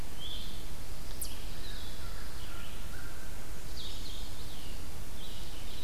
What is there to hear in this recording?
Blue-headed Vireo, Red-eyed Vireo, Red Squirrel, American Crow